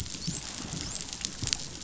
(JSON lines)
{"label": "biophony, dolphin", "recorder": "SoundTrap 500"}